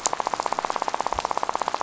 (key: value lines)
label: biophony, rattle
recorder: SoundTrap 500